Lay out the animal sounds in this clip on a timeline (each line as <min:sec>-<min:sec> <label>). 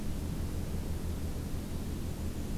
0:01.9-0:02.6 Black-and-white Warbler (Mniotilta varia)